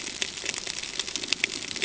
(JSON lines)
{"label": "ambient", "recorder": "HydroMoth"}